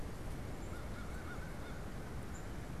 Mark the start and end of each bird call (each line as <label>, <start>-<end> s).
Tufted Titmouse (Baeolophus bicolor), 0.0-2.8 s
American Crow (Corvus brachyrhynchos), 0.5-1.8 s
White-breasted Nuthatch (Sitta carolinensis), 0.5-1.9 s